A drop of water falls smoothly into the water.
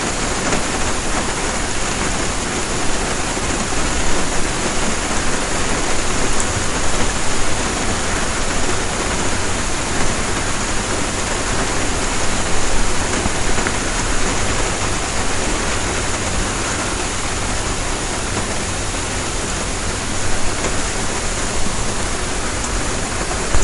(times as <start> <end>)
6.2 6.7